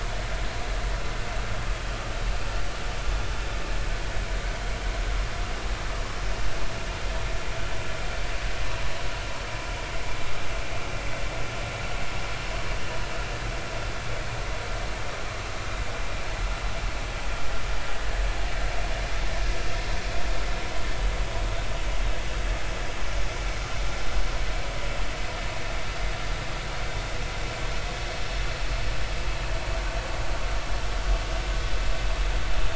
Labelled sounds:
11.0	11.2	vessel noise, 1.9 to 2.2 kHz

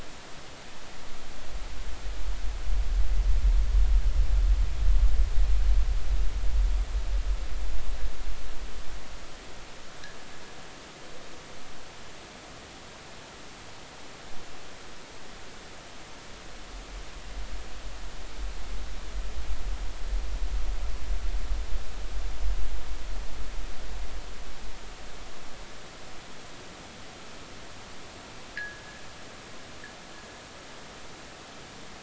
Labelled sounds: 28.6	28.8	fishing gear, 1.6 to 2.1 kHz

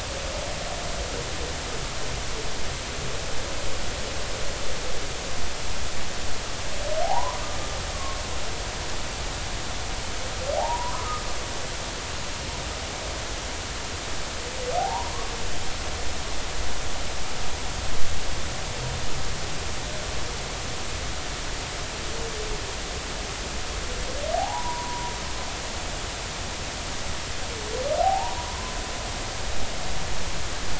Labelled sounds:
7.0	8.2	humpback whale, 0.80 to 1.2 kHz
10.6	11.2	humpback whale, 0.80 to 1.3 kHz
14.8	15.3	humpback whale, 0.80 to 1.2 kHz
24.3	25.1	humpback whale, 0.80 to 1.1 kHz
28.0	28.7	humpback whale, 0.80 to 1.1 kHz

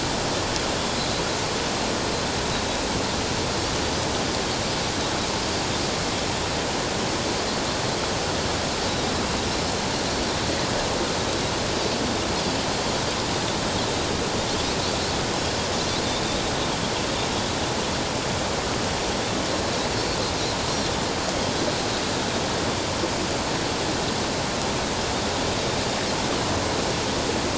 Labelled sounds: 15.7	16.0	Pacific white-sided dolphin, 5.7 to 6.0 kHz

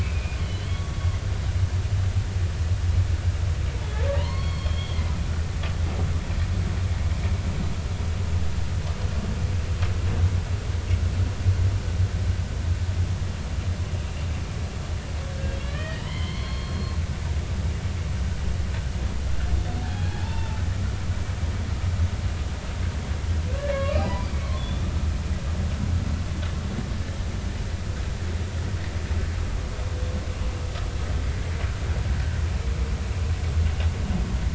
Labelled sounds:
0.0	0.9	humpback whale, 2.2 to 3.5 kHz
4.1	5.0	humpback whale, 0.90 to 4.4 kHz
15.5	17.0	humpback whale, 0.86 to 4.4 kHz
19.8	20.6	humpback whale, 0.80 to 3.6 kHz
23.6	24.9	humpback whale, 1.0 to 3.7 kHz

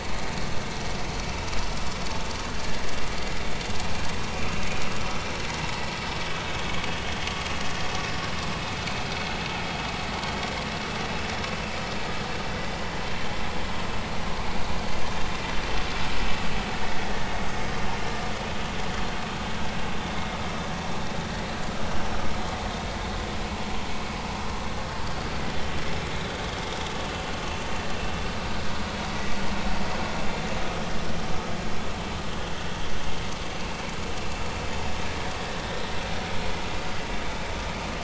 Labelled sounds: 6.5	7.4	vessel noise, 3.1 to 3.4 kHz
32.3	32.5	vessel noise, 3.2 to 3.3 kHz

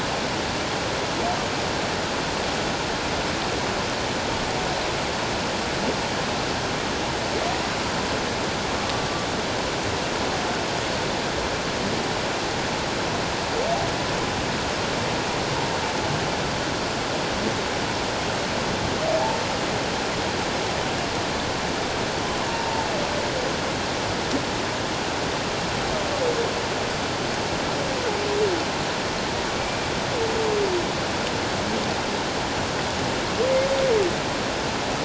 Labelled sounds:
22.5	22.9	humpback whale, 0.84 to 0.97 kHz
29.5	29.8	humpback whale, 2.2 to 2.4 kHz

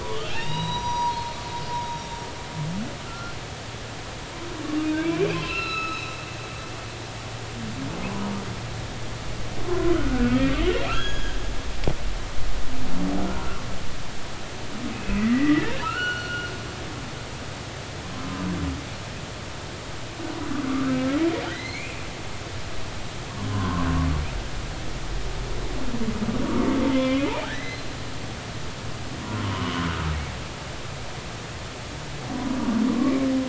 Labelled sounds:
0.0	1.4	humpback whale, 0.80 to 5.9 kHz
1.8	2.3	humpback whale, 3.7 to 5.7 kHz
3.0	3.3	humpback whale, 1.3 to 1.4 kHz
5.0	6.1	humpback whale, 0.99 to 5.4 kHz
9.9	10.4	humpback whale, 1.2 to 1.6 kHz
10.9	11.4	humpback whale, 1.5 to 5.1 kHz
13.3	13.6	humpback whale, 1.3 to 1.5 kHz
14.9	16.5	humpback whale, 1.2 to 5.9 kHz
21.5	22.0	humpback whale, 1.9 to 4.4 kHz
23.5	23.9	humpback whale, 0.96 to 1.2 kHz
26.9	27.9	humpback whale, 0.99 to 4.2 kHz
29.4	29.8	humpback whale, 0.93 to 3.1 kHz
32.9	33.1	humpback whale, 0.96 to 1.2 kHz

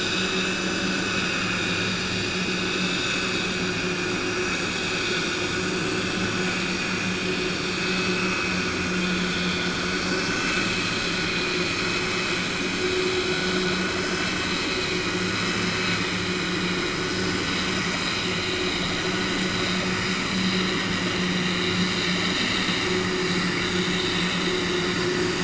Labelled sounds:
10.2	10.8	vessel noise, 1.2 to 3.6 kHz

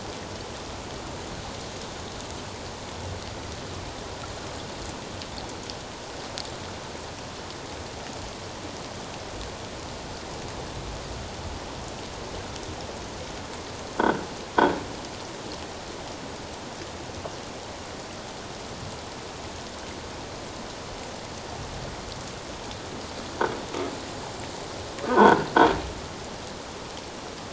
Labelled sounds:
14.0	14.2	croaking sound likely from a nearby submerged object, 1.3 to 1.7 kHz
25.0	25.5	croaking sound likely from a nearby submerged object, 0.81 to 1.7 kHz

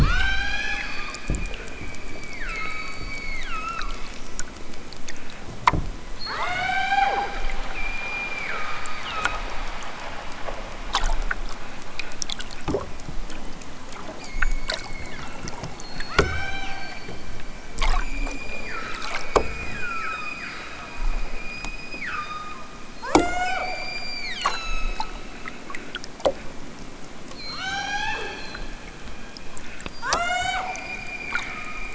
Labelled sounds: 0.0	4.0	killer whale, southern Alaska resident, 0.46 to 8.0 kHz
6.1	9.5	killer whale, southern Alaska resident, 0.46 to 8.0 kHz
14.1	17.3	killer whale, southern Alaska resident, 0.60 to 8.0 kHz
18.0	20.9	killer whale, southern Alaska resident, 0.87 to 8.0 kHz
21.3	22.6	killer whale, southern Alaska resident, 0.87 to 8.0 kHz
22.9	25.2	killer whale, southern Alaska resident, 0.28 to 8.0 kHz
27.3	28.6	killer whale, southern Alaska resident, 0.32 to 8.0 kHz
29.8	31.9	killer whale, southern Alaska resident, 0.28 to 8.0 kHz

